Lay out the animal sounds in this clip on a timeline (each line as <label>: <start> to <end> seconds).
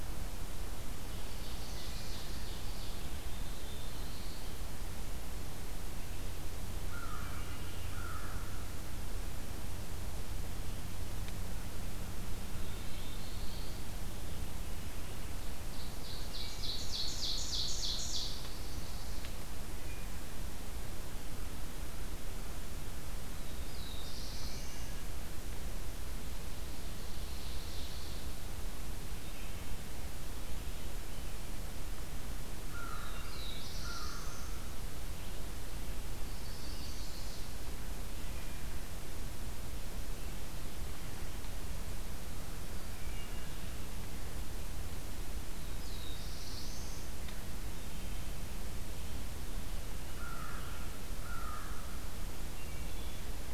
Ovenbird (Seiurus aurocapilla): 1.0 to 3.1 seconds
Black-throated Blue Warbler (Setophaga caerulescens): 3.1 to 4.4 seconds
American Crow (Corvus brachyrhynchos): 6.7 to 8.8 seconds
Black-throated Blue Warbler (Setophaga caerulescens): 12.3 to 13.8 seconds
Ovenbird (Seiurus aurocapilla): 15.7 to 18.6 seconds
Black-throated Blue Warbler (Setophaga caerulescens): 23.2 to 25.0 seconds
Ovenbird (Seiurus aurocapilla): 26.7 to 28.3 seconds
American Crow (Corvus brachyrhynchos): 32.6 to 34.9 seconds
Black-throated Blue Warbler (Setophaga caerulescens): 32.7 to 34.7 seconds
Chestnut-sided Warbler (Setophaga pensylvanica): 36.0 to 37.6 seconds
Wood Thrush (Hylocichla mustelina): 42.8 to 43.7 seconds
Black-throated Blue Warbler (Setophaga caerulescens): 45.4 to 47.2 seconds
American Crow (Corvus brachyrhynchos): 50.0 to 52.4 seconds
Wood Thrush (Hylocichla mustelina): 52.5 to 53.3 seconds